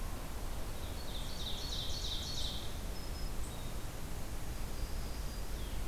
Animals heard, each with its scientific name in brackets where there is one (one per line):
Ovenbird (Seiurus aurocapilla)
Blue-headed Vireo (Vireo solitarius)
Black-throated Green Warbler (Setophaga virens)